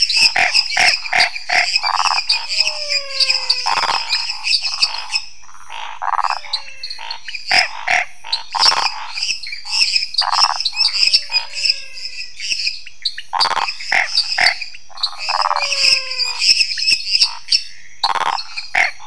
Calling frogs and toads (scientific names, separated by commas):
Dendropsophus minutus, Pithecopus azureus, Phyllomedusa sauvagii, Physalaemus albonotatus, Scinax fuscovarius, Leptodactylus podicipinus